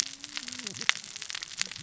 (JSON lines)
{"label": "biophony, cascading saw", "recorder": "SoundTrap 600 or HydroMoth"}